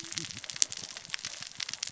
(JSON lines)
{"label": "biophony, cascading saw", "recorder": "SoundTrap 600 or HydroMoth"}